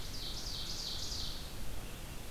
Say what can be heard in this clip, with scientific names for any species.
Seiurus aurocapilla, Vireo olivaceus